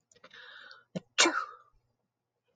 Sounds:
Sneeze